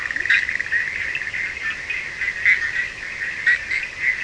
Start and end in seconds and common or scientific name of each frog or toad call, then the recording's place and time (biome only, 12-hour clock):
0.0	4.2	Bischoff's tree frog
0.0	4.2	Cochran's lime tree frog
0.1	0.3	Leptodactylus latrans
0.3	0.7	fine-lined tree frog
2.4	4.2	fine-lined tree frog
Atlantic Forest, 4:15am